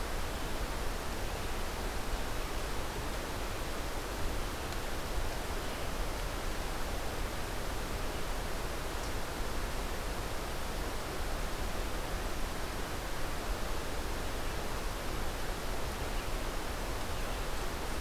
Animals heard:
forest ambience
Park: Hubbard Brook Experimental Forest